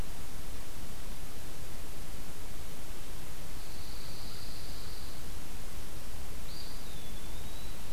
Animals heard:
Eastern Wood-Pewee (Contopus virens)
Pine Warbler (Setophaga pinus)

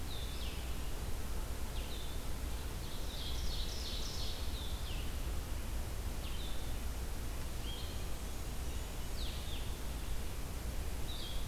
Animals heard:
Ovenbird (Seiurus aurocapilla)
Blue-headed Vireo (Vireo solitarius)
Golden-crowned Kinglet (Regulus satrapa)

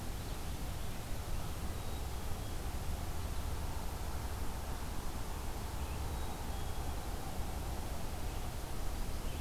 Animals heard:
Red-eyed Vireo (Vireo olivaceus)
Black-capped Chickadee (Poecile atricapillus)

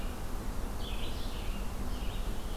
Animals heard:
Red-eyed Vireo (Vireo olivaceus)

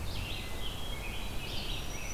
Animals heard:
Hermit Thrush (Catharus guttatus)
Red-eyed Vireo (Vireo olivaceus)
Black-throated Green Warbler (Setophaga virens)

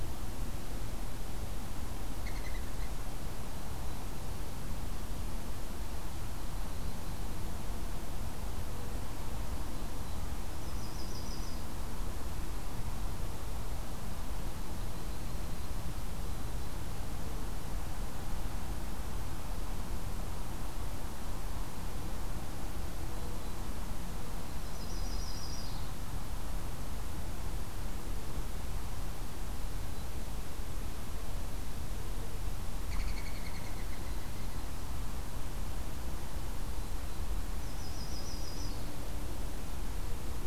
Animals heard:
Yellow-rumped Warbler (Setophaga coronata)
Mourning Dove (Zenaida macroura)

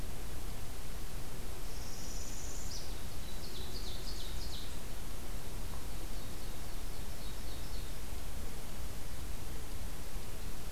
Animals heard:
Ovenbird (Seiurus aurocapilla)
Northern Parula (Setophaga americana)

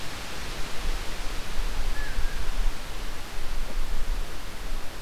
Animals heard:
Blue Jay (Cyanocitta cristata)

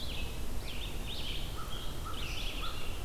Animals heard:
Red-eyed Vireo (Vireo olivaceus)
American Crow (Corvus brachyrhynchos)
Scarlet Tanager (Piranga olivacea)

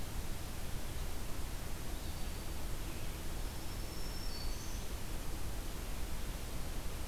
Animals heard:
Black-throated Green Warbler (Setophaga virens)

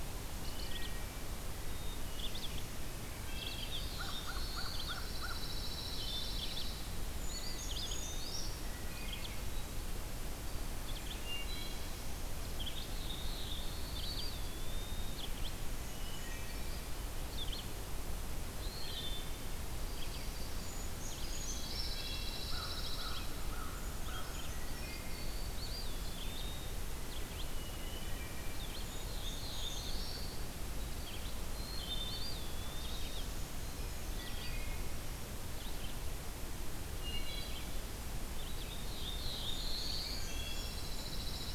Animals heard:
American Crow (Corvus brachyrhynchos)
Pine Warbler (Setophaga pinus)
Red-eyed Vireo (Vireo olivaceus)
Yellow-rumped Warbler (Setophaga coronata)
Hermit Thrush (Catharus guttatus)
Blackburnian Warbler (Setophaga fusca)
Wood Thrush (Hylocichla mustelina)
Black-capped Chickadee (Poecile atricapillus)
Black-throated Blue Warbler (Setophaga caerulescens)
Brown Creeper (Certhia americana)
Eastern Wood-Pewee (Contopus virens)

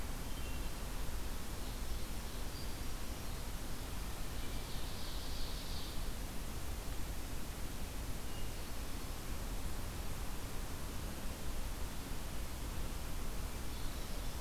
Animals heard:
Ovenbird (Seiurus aurocapilla)
Hermit Thrush (Catharus guttatus)

